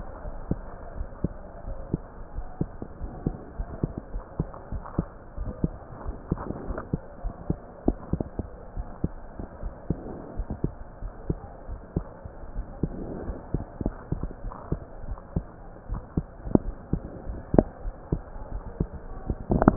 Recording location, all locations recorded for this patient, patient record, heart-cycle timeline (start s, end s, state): aortic valve (AV)
aortic valve (AV)+pulmonary valve (PV)+tricuspid valve (TV)+mitral valve (MV)
#Age: Child
#Sex: Male
#Height: 131.0 cm
#Weight: 25.9 kg
#Pregnancy status: False
#Murmur: Absent
#Murmur locations: nan
#Most audible location: nan
#Systolic murmur timing: nan
#Systolic murmur shape: nan
#Systolic murmur grading: nan
#Systolic murmur pitch: nan
#Systolic murmur quality: nan
#Diastolic murmur timing: nan
#Diastolic murmur shape: nan
#Diastolic murmur grading: nan
#Diastolic murmur pitch: nan
#Diastolic murmur quality: nan
#Outcome: Normal
#Campaign: 2015 screening campaign
0.00	0.94	unannotated
0.94	1.08	S1
1.08	1.20	systole
1.20	1.34	S2
1.34	1.64	diastole
1.64	1.78	S1
1.78	1.90	systole
1.90	2.04	S2
2.04	2.34	diastole
2.34	2.48	S1
2.48	2.59	systole
2.59	2.70	S2
2.70	3.00	diastole
3.00	3.14	S1
3.14	3.24	systole
3.24	3.36	S2
3.36	3.56	diastole
3.56	3.67	S1
3.67	3.80	systole
3.80	3.90	S2
3.90	4.11	diastole
4.11	4.22	S1
4.22	4.36	systole
4.36	4.50	S2
4.50	4.72	diastole
4.72	4.84	S1
4.84	4.94	systole
4.94	5.06	S2
5.06	5.34	diastole
5.34	5.52	S1
5.52	5.60	systole
5.60	5.76	S2
5.76	6.02	diastole
6.02	6.16	S1
6.16	6.28	systole
6.28	6.42	S2
6.42	6.64	diastole
6.64	6.78	S1
6.78	6.90	systole
6.90	7.00	S2
7.00	7.22	diastole
7.22	7.34	S1
7.34	7.46	systole
7.46	7.60	S2
7.60	7.83	diastole
7.83	19.76	unannotated